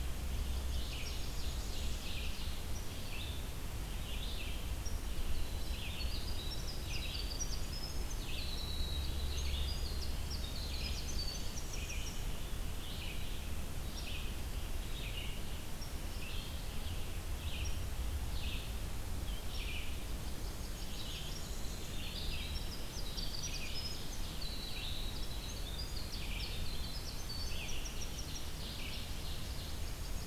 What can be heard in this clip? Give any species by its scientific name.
Vireo olivaceus, Setophaga fusca, Seiurus aurocapilla, Troglodytes hiemalis